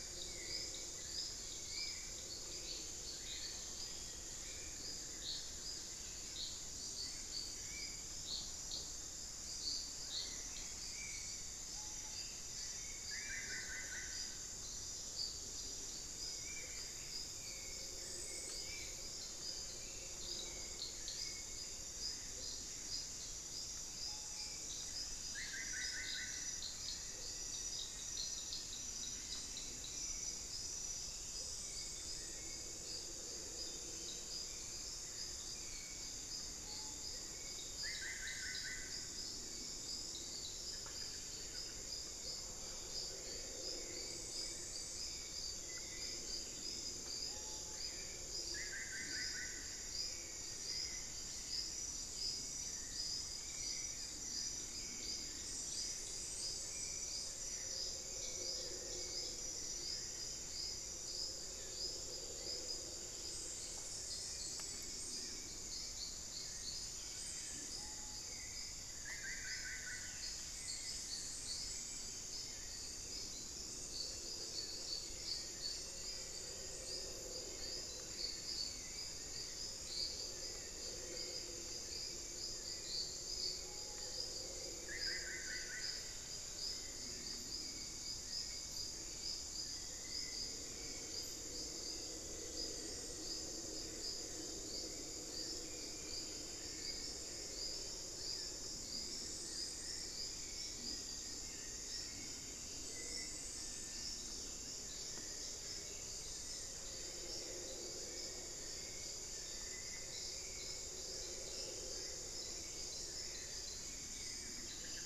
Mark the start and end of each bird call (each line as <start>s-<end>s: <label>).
0.0s-2.5s: Spot-winged Antshrike (Pygiptila stellaris)
0.0s-115.1s: Hauxwell's Thrush (Turdus hauxwelli)
3.8s-6.7s: Buff-throated Woodcreeper (Xiphorhynchus guttatus)
7.6s-19.1s: Spot-winged Antshrike (Pygiptila stellaris)
9.8s-11.0s: White-rumped Sirystes (Sirystes albocinereus)
11.7s-12.3s: Screaming Piha (Lipaugus vociferans)
12.9s-14.3s: Solitary Black Cacique (Cacicus solitarius)
23.9s-24.7s: Screaming Piha (Lipaugus vociferans)
25.1s-26.6s: Solitary Black Cacique (Cacicus solitarius)
26.7s-28.8s: unidentified bird
27.1s-31.7s: Amazonian Motmot (Momotus momota)
29.0s-30.2s: White-rumped Sirystes (Sirystes albocinereus)
36.4s-37.3s: Black-faced Cotinga (Conioptilon mcilhennyi)
37.6s-41.9s: Solitary Black Cacique (Cacicus solitarius)
47.1s-48.0s: Screaming Piha (Lipaugus vociferans)
48.4s-49.8s: Solitary Black Cacique (Cacicus solitarius)
67.6s-68.4s: Screaming Piha (Lipaugus vociferans)
69.0s-70.4s: Solitary Black Cacique (Cacicus solitarius)
75.2s-77.5s: Black-faced Antthrush (Formicarius analis)
83.5s-84.3s: Screaming Piha (Lipaugus vociferans)
84.7s-86.1s: Solitary Black Cacique (Cacicus solitarius)
86.4s-87.7s: White-rumped Sirystes (Sirystes albocinereus)
90.9s-93.8s: Elegant Woodcreeper (Xiphorhynchus elegans)
99.9s-102.2s: Elegant Woodcreeper (Xiphorhynchus elegans)
103.5s-104.1s: Cinereous Tinamou (Crypturellus cinereus)
114.5s-115.1s: Solitary Black Cacique (Cacicus solitarius)